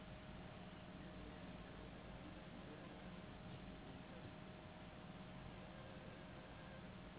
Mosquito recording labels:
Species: Anopheles gambiae s.s.; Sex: female; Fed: unfed; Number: one; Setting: insect culture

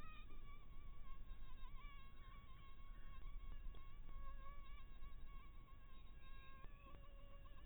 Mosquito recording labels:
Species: Anopheles harrisoni; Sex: female; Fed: blood-fed; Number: one; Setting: cup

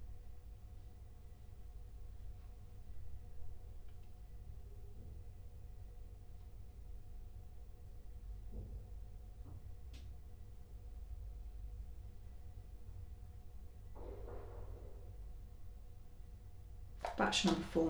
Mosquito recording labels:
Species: Culex quinquefasciatus; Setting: cup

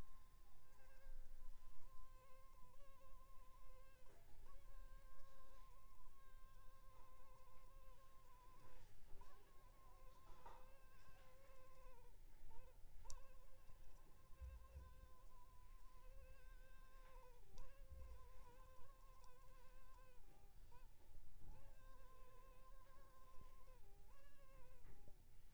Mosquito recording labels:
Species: Culex pipiens complex; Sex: female; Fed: unfed; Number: one; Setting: cup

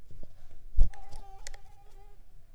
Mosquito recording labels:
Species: Mansonia uniformis; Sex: female; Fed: unfed; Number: one; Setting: cup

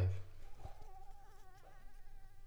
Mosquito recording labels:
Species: Anopheles gambiae s.l.; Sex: female; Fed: unfed; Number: one; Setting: cup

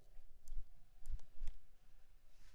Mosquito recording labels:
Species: Anopheles maculipalpis; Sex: female; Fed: blood-fed; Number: one; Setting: cup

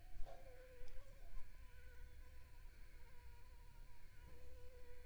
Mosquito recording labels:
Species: Anopheles arabiensis; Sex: female; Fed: unfed; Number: one; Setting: cup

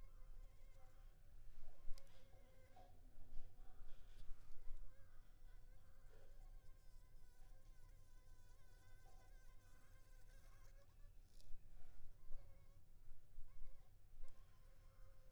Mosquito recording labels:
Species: Anopheles funestus s.s.; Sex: female; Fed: unfed; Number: one; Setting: cup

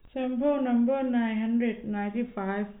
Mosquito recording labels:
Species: no mosquito; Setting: cup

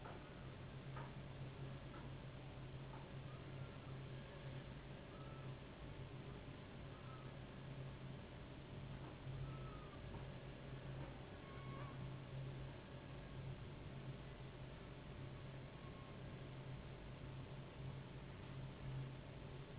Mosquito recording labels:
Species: Anopheles gambiae s.s.; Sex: female; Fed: unfed; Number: one; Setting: insect culture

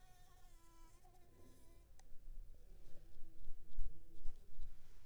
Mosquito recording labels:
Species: Anopheles arabiensis; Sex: female; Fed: unfed; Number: one; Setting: cup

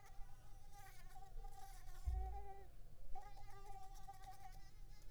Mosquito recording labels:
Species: Culex pipiens complex; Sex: female; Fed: unfed; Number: one; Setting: cup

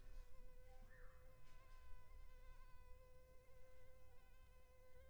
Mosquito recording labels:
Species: Culex pipiens complex; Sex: female; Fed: unfed; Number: one; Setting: cup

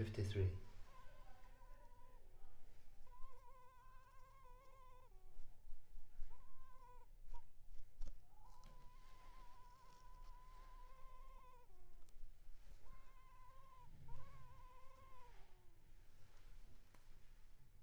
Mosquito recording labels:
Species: Culex pipiens complex; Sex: female; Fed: unfed; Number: one; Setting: cup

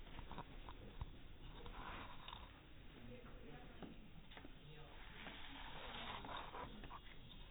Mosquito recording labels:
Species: no mosquito; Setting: cup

